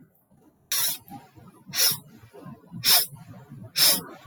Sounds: Sniff